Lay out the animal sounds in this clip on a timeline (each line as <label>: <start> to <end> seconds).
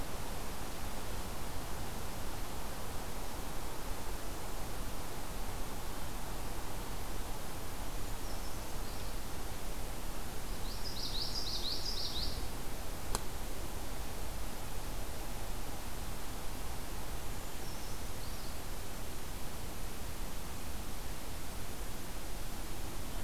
Brown Creeper (Certhia americana): 7.8 to 9.1 seconds
Common Yellowthroat (Geothlypis trichas): 10.4 to 12.4 seconds
Brown Creeper (Certhia americana): 17.3 to 18.6 seconds